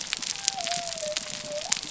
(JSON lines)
{"label": "biophony", "recorder": "SoundTrap 300"}